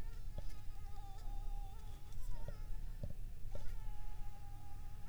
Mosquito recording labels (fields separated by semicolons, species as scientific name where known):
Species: Anopheles arabiensis; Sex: female; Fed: unfed; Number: one; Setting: cup